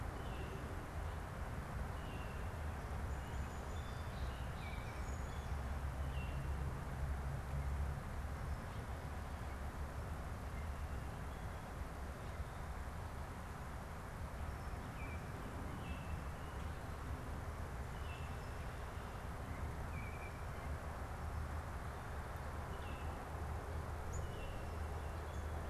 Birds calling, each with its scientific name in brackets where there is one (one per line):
Baltimore Oriole (Icterus galbula)
Song Sparrow (Melospiza melodia)